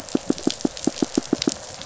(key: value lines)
label: biophony, pulse
recorder: SoundTrap 500